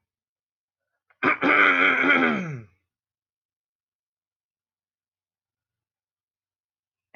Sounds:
Throat clearing